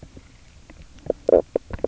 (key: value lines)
label: biophony, knock croak
recorder: SoundTrap 300